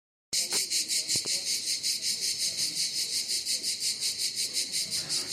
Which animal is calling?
Cicada orni, a cicada